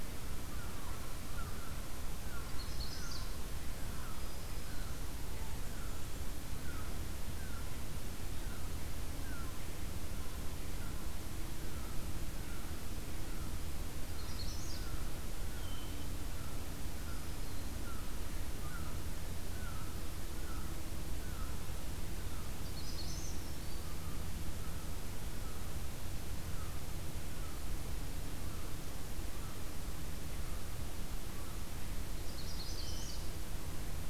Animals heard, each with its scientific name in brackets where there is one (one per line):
Red-winged Blackbird (Agelaius phoeniceus)
American Herring Gull (Larus smithsonianus)
Black-throated Green Warbler (Setophaga virens)
Magnolia Warbler (Setophaga magnolia)